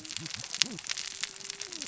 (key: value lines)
label: biophony, cascading saw
recorder: SoundTrap 600 or HydroMoth